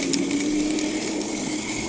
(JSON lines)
{"label": "anthrophony, boat engine", "recorder": "HydroMoth"}